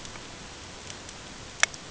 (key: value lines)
label: ambient
recorder: HydroMoth